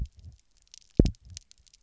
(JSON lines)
{"label": "biophony, double pulse", "recorder": "SoundTrap 300"}